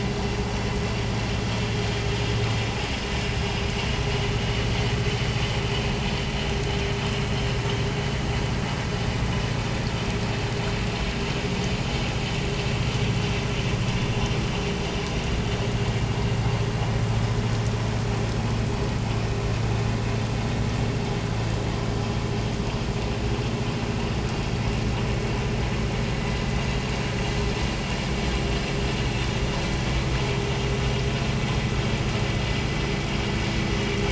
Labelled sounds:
4.4	4.7	vessel noise, 2.9 to 3.0 kHz

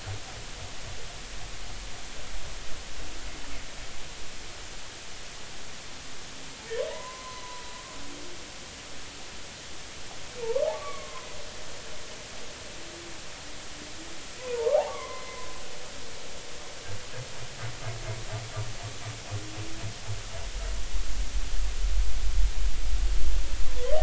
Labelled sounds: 6.9	8.5	humpback whale, 0.86 to 4.1 kHz
10.7	11.3	humpback whale, 0.96 to 1.2 kHz
14.4	15.5	humpback whale, 0.86 to 2.3 kHz

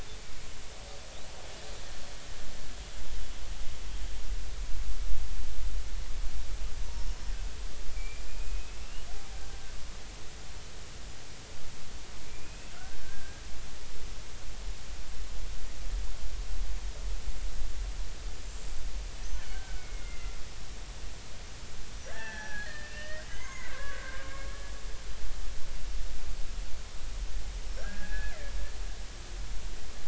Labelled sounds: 7.9	9.1	killer whale, Bigg's (transient), 2.2 to 3.0 kHz
12.2	13.4	killer whale, Bigg's (transient), 1.3 to 2.7 kHz
19.4	20.4	killer whale, Bigg's (transient), 1.3 to 3.1 kHz
22.1	24.3	killer whale, Bigg's (transient), 0.80 to 6.4 kHz
27.8	28.3	killer whale, Bigg's (transient), 1.3 to 2.6 kHz

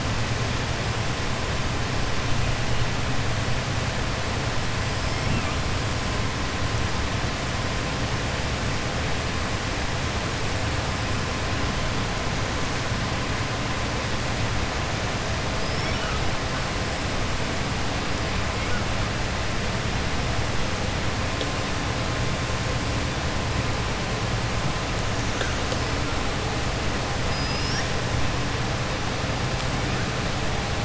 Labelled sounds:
15.5	16.0	killer whale, southern resident, 4.9 to 5.6 kHz
27.2	27.9	killer whale, southern resident, 4.8 to 6.6 kHz

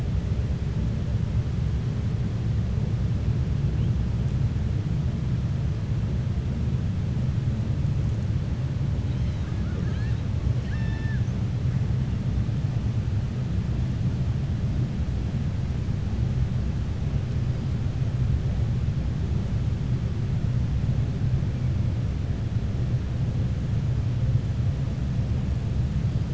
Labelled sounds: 9.0	10.2	killer whale, 0.45 to 5.1 kHz
10.5	11.2	killer whale, 0.89 to 5.8 kHz

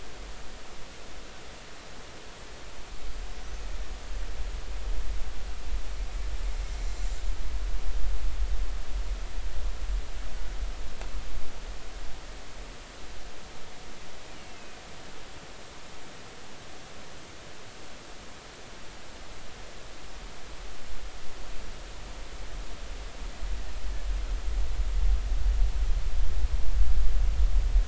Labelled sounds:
14.3	14.8	killer whale, Bigg's (transient), 2.4 to 3.0 kHz

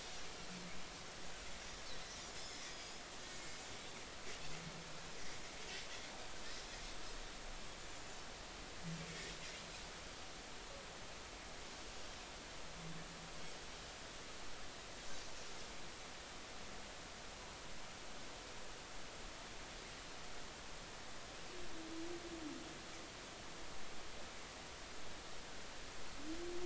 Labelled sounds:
2.3	3.0	Pacific white-sided dolphin, 3.3 to 5.4 kHz
3.4	3.7	Pacific white-sided dolphin, 7.1 to 7.4 kHz

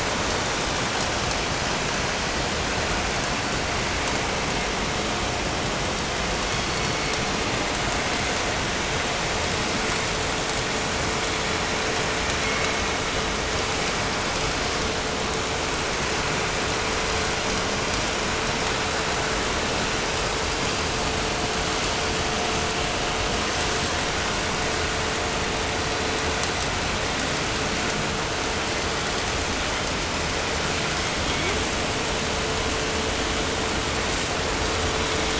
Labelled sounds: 6.2	7.3	killer whale, southern resident, call S16, 1.5 to 4.7 kHz
12.4	13.3	killer whale, southern resident, call S16, 2.0 to 4.6 kHz
30.7	31.9	killer whale, 1.4 to 5.6 kHz

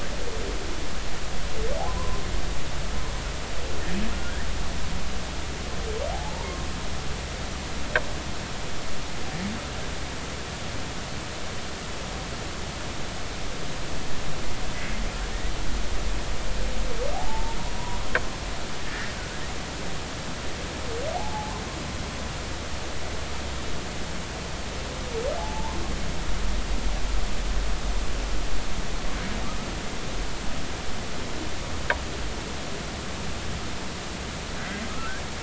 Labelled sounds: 1.9	2.2	humpback whale, 0.96 to 1.1 kHz
6.1	6.5	humpback whale, 0.80 to 0.99 kHz
17.1	17.6	humpback whale, 0.80 to 0.96 kHz
21.1	21.6	humpback whale, 0.80 to 1.1 kHz
25.4	25.8	humpback whale, 0.80 to 1.1 kHz

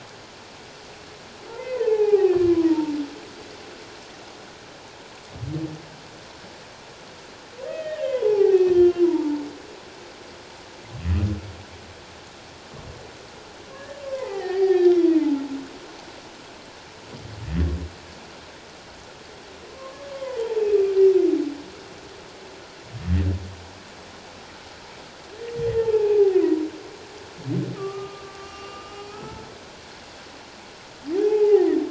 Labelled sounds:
1.6	3.0	humpback whale, 0.78 to 2.8 kHz
7.6	9.4	humpback whale, 0.78 to 3.2 kHz
13.7	15.0	humpback whale, 0.78 to 5.1 kHz
19.7	20.0	humpback whale, 0.97 to 1.2 kHz
20.6	20.8	humpback whale, 2.5 to 2.7 kHz
25.9	26.4	humpback whale, 0.78 to 2.7 kHz
27.8	29.5	humpback whale, 1.1 to 2.8 kHz
31.1	31.7	humpback whale, 0.78 to 2.6 kHz

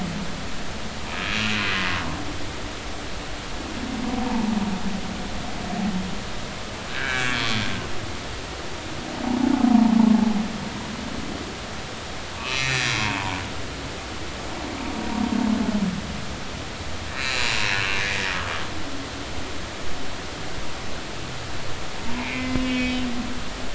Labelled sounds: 1.3	1.5	humpback whale, 2.4 to 3.0 kHz
4.1	4.6	humpback whale, 0.80 to 0.99 kHz
6.9	7.5	humpback whale, 1.4 to 3.5 kHz
12.4	13.4	humpback whale, 0.80 to 6.0 kHz
17.1	17.6	humpback whale, 1.7 to 7.2 kHz
18.0	18.2	humpback whale, 1.6 to 2.1 kHz
22.2	23.3	humpback whale, 0.86 to 3.4 kHz

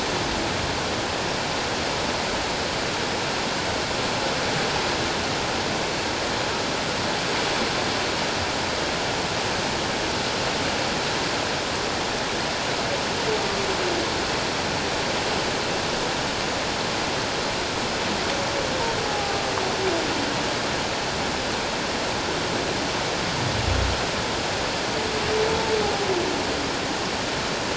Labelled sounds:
19.0	19.3	humpback whale, 0.78 to 0.88 kHz

